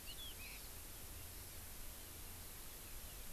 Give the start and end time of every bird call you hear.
0.0s-0.6s: Chinese Hwamei (Garrulax canorus)
0.4s-0.7s: Hawaii Amakihi (Chlorodrepanis virens)

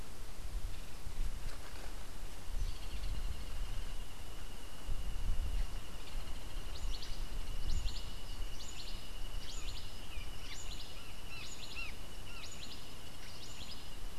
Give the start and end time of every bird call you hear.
2.6s-3.3s: Hoffmann's Woodpecker (Melanerpes hoffmannii)
6.5s-14.2s: Cabanis's Wren (Cantorchilus modestus)

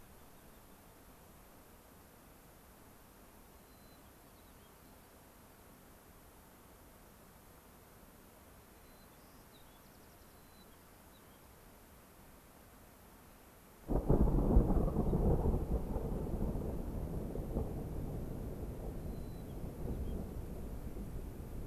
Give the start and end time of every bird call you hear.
0.0s-1.0s: American Pipit (Anthus rubescens)
3.6s-5.0s: White-crowned Sparrow (Zonotrichia leucophrys)
8.7s-11.5s: White-crowned Sparrow (Zonotrichia leucophrys)
19.0s-20.2s: White-crowned Sparrow (Zonotrichia leucophrys)

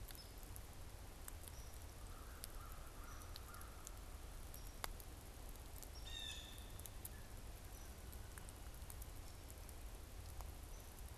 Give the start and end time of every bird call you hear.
0.0s-11.1s: Hairy Woodpecker (Dryobates villosus)
1.7s-4.0s: American Crow (Corvus brachyrhynchos)
5.9s-6.7s: Blue Jay (Cyanocitta cristata)

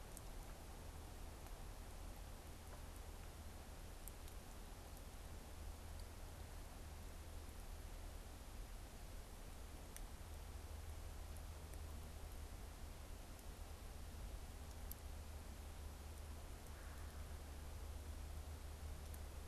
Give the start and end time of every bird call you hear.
16.5s-17.6s: Red-bellied Woodpecker (Melanerpes carolinus)

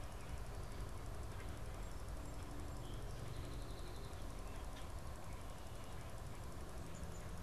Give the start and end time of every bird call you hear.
1.6s-4.3s: Song Sparrow (Melospiza melodia)

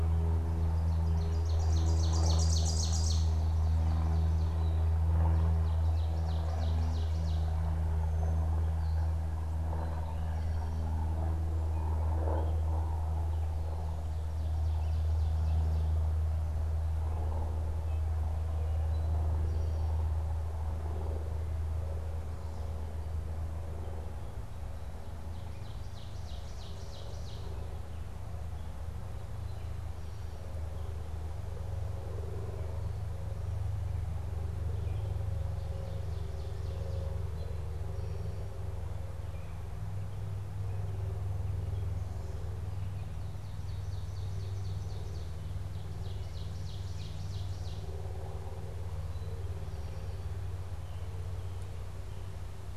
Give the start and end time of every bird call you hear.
0.6s-7.7s: Ovenbird (Seiurus aurocapilla)
9.6s-11.1s: Eastern Towhee (Pipilo erythrophthalmus)
14.1s-16.1s: Ovenbird (Seiurus aurocapilla)
18.7s-20.0s: Eastern Towhee (Pipilo erythrophthalmus)
25.2s-27.5s: Ovenbird (Seiurus aurocapilla)
35.4s-37.3s: Ovenbird (Seiurus aurocapilla)
43.1s-48.1s: Ovenbird (Seiurus aurocapilla)

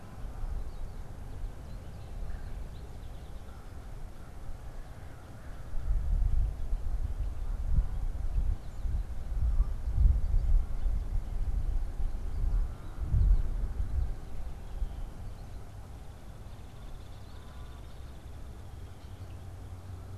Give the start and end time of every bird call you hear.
2.0s-2.8s: Red-bellied Woodpecker (Melanerpes carolinus)
2.4s-3.7s: unidentified bird
15.3s-19.8s: unidentified bird

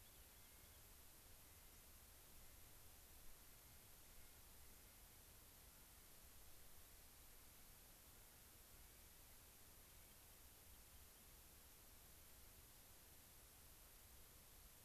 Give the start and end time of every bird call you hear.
0.0s-0.8s: Rock Wren (Salpinctes obsoletus)
0.0s-5.4s: Clark's Nutcracker (Nucifraga columbiana)
7.3s-7.8s: Clark's Nutcracker (Nucifraga columbiana)
8.6s-9.2s: Clark's Nutcracker (Nucifraga columbiana)
9.7s-10.2s: Clark's Nutcracker (Nucifraga columbiana)
9.7s-11.2s: Rock Wren (Salpinctes obsoletus)

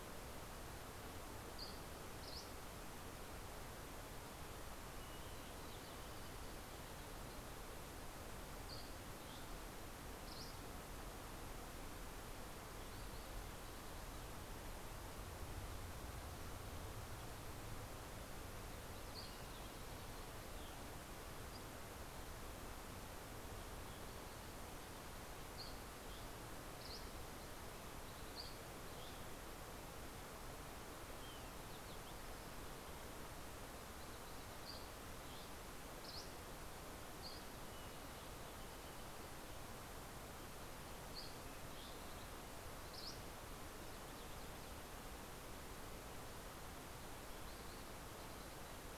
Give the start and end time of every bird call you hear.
1.1s-3.0s: Dusky Flycatcher (Empidonax oberholseri)
4.6s-8.0s: Fox Sparrow (Passerella iliaca)
8.2s-11.0s: Dusky Flycatcher (Empidonax oberholseri)
18.7s-21.0s: Dusky Flycatcher (Empidonax oberholseri)
25.2s-27.3s: Dusky Flycatcher (Empidonax oberholseri)
28.2s-29.5s: Dusky Flycatcher (Empidonax oberholseri)
32.5s-35.2s: Yellow-rumped Warbler (Setophaga coronata)
33.9s-37.9s: Dusky Flycatcher (Empidonax oberholseri)
40.6s-43.4s: Dusky Flycatcher (Empidonax oberholseri)

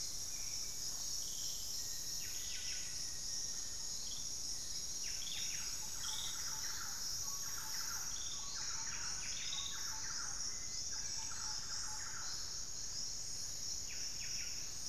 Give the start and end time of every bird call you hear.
0.0s-11.0s: Hauxwell's Thrush (Turdus hauxwelli)
0.0s-14.8s: Buff-breasted Wren (Cantorchilus leucotis)
1.5s-4.0s: Black-faced Antthrush (Formicarius analis)
5.5s-12.9s: Thrush-like Wren (Campylorhynchus turdinus)

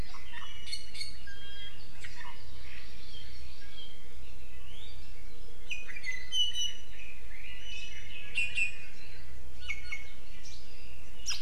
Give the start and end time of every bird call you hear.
0.0s-2.3s: Iiwi (Drepanis coccinea)
2.4s-3.9s: Hawaii Amakihi (Chlorodrepanis virens)
5.7s-6.9s: Iiwi (Drepanis coccinea)
7.3s-9.2s: Red-billed Leiothrix (Leiothrix lutea)
7.6s-8.9s: Iiwi (Drepanis coccinea)
9.6s-10.2s: Iiwi (Drepanis coccinea)
11.2s-11.4s: Iiwi (Drepanis coccinea)

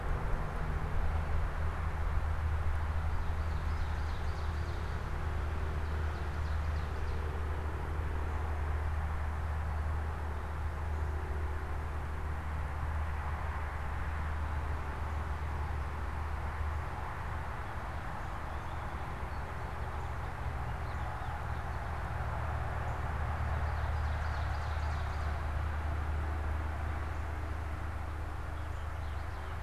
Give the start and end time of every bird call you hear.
3.0s-7.6s: Ovenbird (Seiurus aurocapilla)
18.4s-22.3s: American Goldfinch (Spinus tristis)
23.6s-25.6s: Ovenbird (Seiurus aurocapilla)

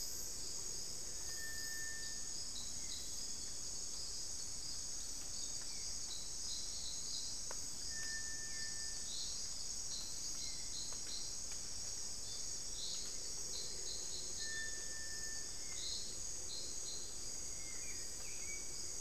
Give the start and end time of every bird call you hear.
15.3s-18.1s: Spot-winged Antshrike (Pygiptila stellaris)

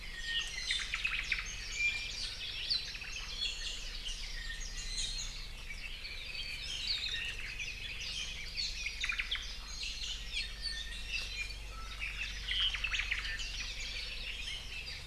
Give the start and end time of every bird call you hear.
0.1s-1.1s: Iiwi (Drepanis coccinea)
0.7s-1.6s: Omao (Myadestes obscurus)
1.7s-2.2s: Iiwi (Drepanis coccinea)
2.6s-3.0s: Apapane (Himatione sanguinea)
2.7s-3.4s: Omao (Myadestes obscurus)
3.3s-5.4s: Iiwi (Drepanis coccinea)
5.7s-6.8s: Apapane (Himatione sanguinea)
6.8s-7.3s: Hawaii Akepa (Loxops coccineus)
6.9s-7.6s: Omao (Myadestes obscurus)
7.3s-9.0s: Red-billed Leiothrix (Leiothrix lutea)
9.0s-9.5s: Omao (Myadestes obscurus)
9.8s-10.6s: Apapane (Himatione sanguinea)
10.5s-11.6s: Iiwi (Drepanis coccinea)
11.7s-12.9s: Apapane (Himatione sanguinea)
12.6s-13.4s: Omao (Myadestes obscurus)

